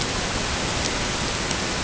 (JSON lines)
{"label": "ambient", "recorder": "HydroMoth"}